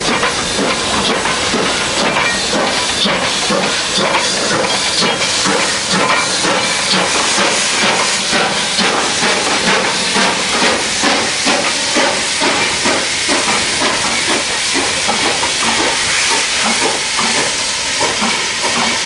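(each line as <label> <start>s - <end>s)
Steam locomotive hisses and chugs rhythmically, accelerating briefly before slowing down. 0.0s - 19.1s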